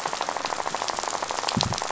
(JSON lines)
{"label": "biophony, rattle", "recorder": "SoundTrap 500"}